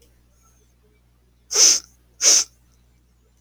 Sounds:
Sniff